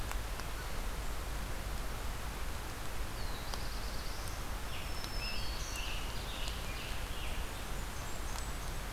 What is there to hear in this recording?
Black-throated Blue Warbler, Black-throated Green Warbler, Scarlet Tanager, Ovenbird, Blackburnian Warbler